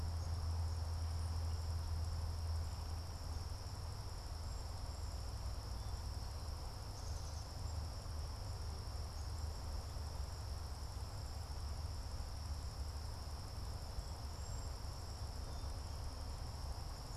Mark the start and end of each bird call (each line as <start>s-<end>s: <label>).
0.0s-17.2s: Black-capped Chickadee (Poecile atricapillus)
14.1s-15.0s: Cedar Waxwing (Bombycilla cedrorum)